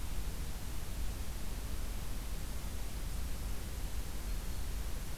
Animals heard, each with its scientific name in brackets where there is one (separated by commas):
Black-throated Green Warbler (Setophaga virens)